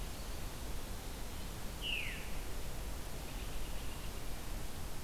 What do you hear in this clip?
Veery, American Robin